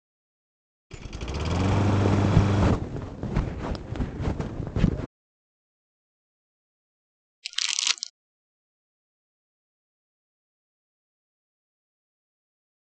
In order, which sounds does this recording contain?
engine starting, wind, crumpling